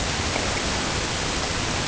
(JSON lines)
{"label": "ambient", "recorder": "HydroMoth"}